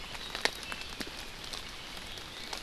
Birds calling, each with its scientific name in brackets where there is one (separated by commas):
Iiwi (Drepanis coccinea)